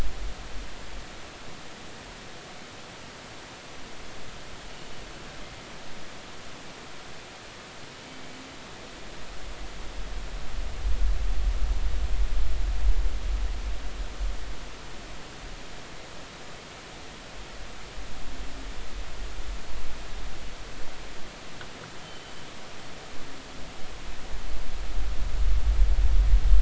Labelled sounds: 22.0	22.3	killer whale, northern resident, G clan, GG subclan, call N23ii, 2.9 to 3.2 kHz

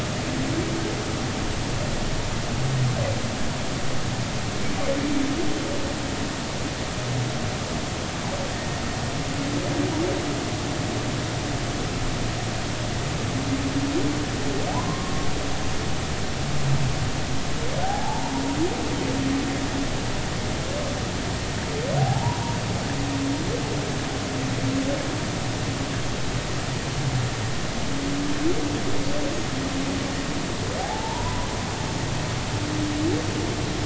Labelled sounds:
8.5	8.8	humpback whale, 1.8 to 2.0 kHz
14.7	15.3	humpback whale, 0.80 to 1.2 kHz
17.8	18.3	humpback whale, 0.80 to 1.7 kHz
22.0	22.4	humpback whale, 0.80 to 1.0 kHz
30.8	31.5	humpback whale, 0.80 to 1.1 kHz

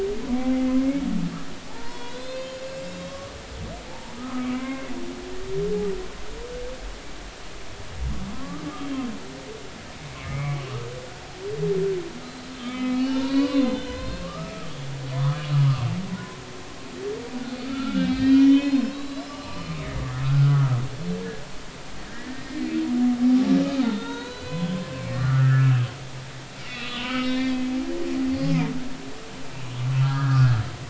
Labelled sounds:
1.7	3.3	humpback whale, 0.83 to 6.9 kHz
3.9	4.9	humpback whale, 0.80 to 2.4 kHz
8.3	8.6	humpback whale, 0.99 to 1.3 kHz
10.2	10.6	humpback whale, 2.0 to 2.4 kHz
12.2	14.7	humpback whale, 0.83 to 4.6 kHz
15.1	15.5	humpback whale, 0.93 to 1.3 kHz
17.6	20.8	humpback whale, 0.96 to 5.7 kHz
22.1	22.6	humpback whale, 1.5 to 1.9 kHz
23.8	25.9	humpback whale, 0.86 to 4.1 kHz
26.6	27.6	humpback whale, 1.1 to 4.5 kHz
28.4	28.7	humpback whale, 0.86 to 1.2 kHz
29.9	30.6	humpback whale, 1.1 to 1.8 kHz

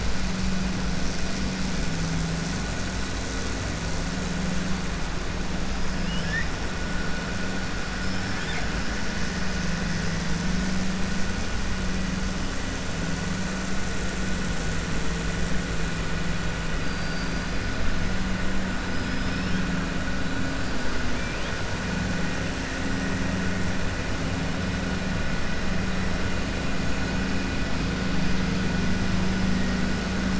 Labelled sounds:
5.9	6.5	killer whale, 1.7 to 3.6 kHz

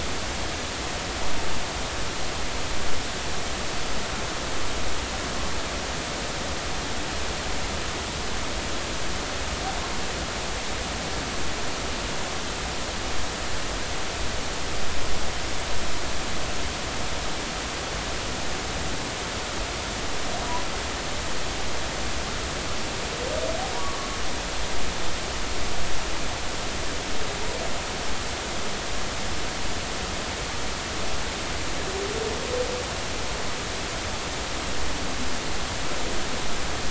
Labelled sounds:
9.7	9.9	humpback whale, 0.80 to 1.1 kHz
23.8	24.1	humpback whale, 1.0 to 1.2 kHz

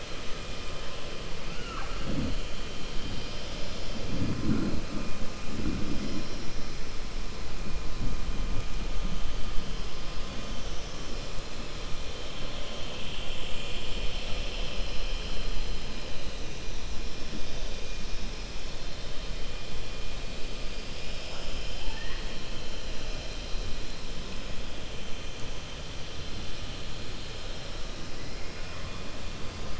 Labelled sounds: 21.7	22.4	killer whale, 0.75 to 3.2 kHz

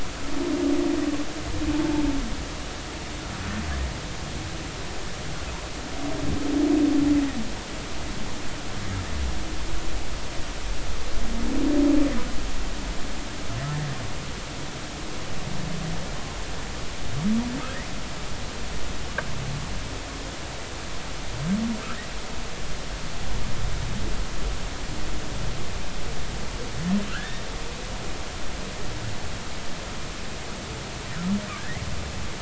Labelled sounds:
27.1	27.4	humpback whale, 1.3 to 3.7 kHz
31.6	31.8	humpback whale, 1.5 to 2.2 kHz

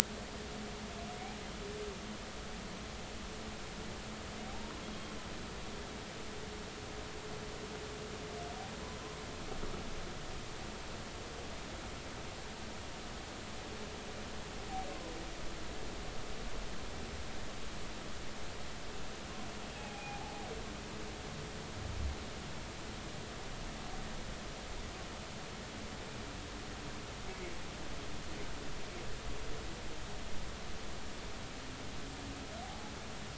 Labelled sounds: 4.5	5.1	humpback whale, 0.80 to 3.4 kHz
19.8	20.5	humpback whale, 0.80 to 2.5 kHz
32.6	32.9	humpback whale, 0.80 to 0.90 kHz

